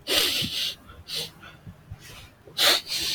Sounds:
Sniff